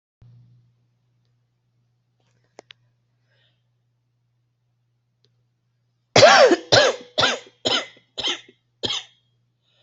{"expert_labels": [{"quality": "ok", "cough_type": "dry", "dyspnea": false, "wheezing": true, "stridor": false, "choking": false, "congestion": false, "nothing": false, "diagnosis": "COVID-19", "severity": "mild"}, {"quality": "good", "cough_type": "dry", "dyspnea": false, "wheezing": true, "stridor": false, "choking": false, "congestion": false, "nothing": false, "diagnosis": "obstructive lung disease", "severity": "mild"}, {"quality": "good", "cough_type": "dry", "dyspnea": false, "wheezing": false, "stridor": false, "choking": false, "congestion": false, "nothing": true, "diagnosis": "lower respiratory tract infection", "severity": "unknown"}, {"quality": "good", "cough_type": "dry", "dyspnea": false, "wheezing": false, "stridor": false, "choking": false, "congestion": false, "nothing": true, "diagnosis": "upper respiratory tract infection", "severity": "mild"}], "age": 31, "gender": "female", "respiratory_condition": true, "fever_muscle_pain": true, "status": "symptomatic"}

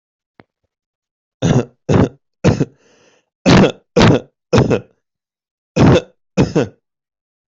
{"expert_labels": [{"quality": "good", "cough_type": "unknown", "dyspnea": false, "wheezing": false, "stridor": false, "choking": false, "congestion": false, "nothing": true, "diagnosis": "healthy cough", "severity": "pseudocough/healthy cough"}]}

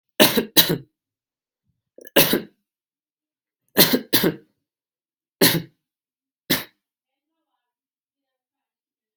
{"expert_labels": [{"quality": "ok", "cough_type": "dry", "dyspnea": false, "wheezing": false, "stridor": false, "choking": false, "congestion": false, "nothing": true, "diagnosis": "COVID-19", "severity": "mild"}], "age": 23, "gender": "male", "respiratory_condition": false, "fever_muscle_pain": false, "status": "symptomatic"}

